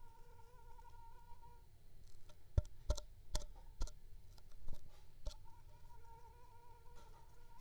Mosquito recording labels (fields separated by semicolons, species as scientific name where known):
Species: Anopheles gambiae s.l.; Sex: female; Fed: unfed; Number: one; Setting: cup